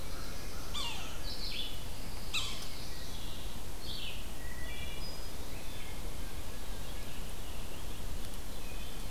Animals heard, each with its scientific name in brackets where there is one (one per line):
Black-throated Blue Warbler (Setophaga caerulescens)
Pine Warbler (Setophaga pinus)
Red-eyed Vireo (Vireo olivaceus)
Wood Thrush (Hylocichla mustelina)
American Crow (Corvus brachyrhynchos)
Yellow-bellied Sapsucker (Sphyrapicus varius)